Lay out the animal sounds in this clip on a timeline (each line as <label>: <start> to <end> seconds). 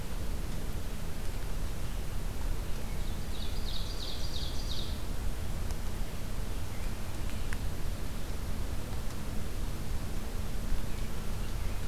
Ovenbird (Seiurus aurocapilla): 3.0 to 5.0 seconds